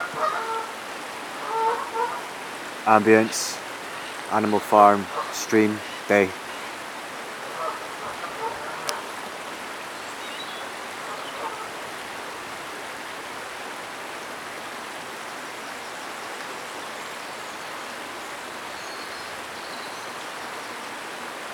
Does the man sound as if he is surrounded by a large number of people?
no